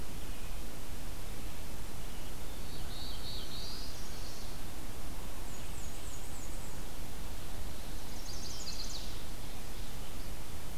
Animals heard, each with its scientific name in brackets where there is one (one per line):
Chestnut-sided Warbler (Setophaga pensylvanica)
Black-throated Blue Warbler (Setophaga caerulescens)
Black-and-white Warbler (Mniotilta varia)